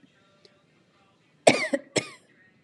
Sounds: Cough